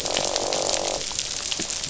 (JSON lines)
{"label": "biophony, croak", "recorder": "SoundTrap 500"}